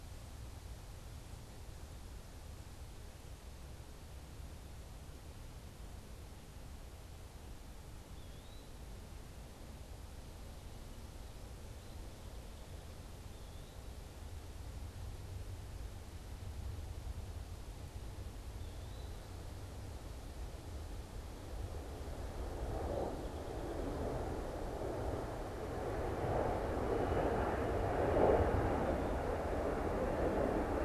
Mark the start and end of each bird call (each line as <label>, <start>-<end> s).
Eastern Wood-Pewee (Contopus virens), 8.0-8.8 s
Eastern Wood-Pewee (Contopus virens), 13.2-14.1 s
Eastern Wood-Pewee (Contopus virens), 18.4-19.3 s
Song Sparrow (Melospiza melodia), 22.8-24.0 s